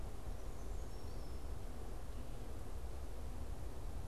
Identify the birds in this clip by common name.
Brown Creeper